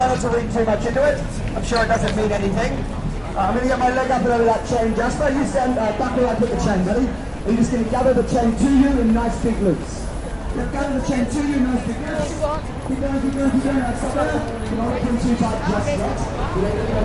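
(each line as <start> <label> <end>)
0.0 People chatter in the background, muffled and slightly distant. 17.0
0.0 Traffic sounds. 17.0
0.0 Man speaking loudly with a slightly muffled and tinny voice. 10.0
10.6 A man is speaking with a slightly muffled and tinny voice. 12.2
13.2 A man is speaking indistinctly into a microphone. 16.9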